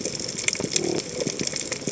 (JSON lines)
{"label": "biophony", "recorder": "HydroMoth"}